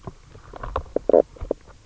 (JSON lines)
{"label": "biophony, knock croak", "recorder": "SoundTrap 300"}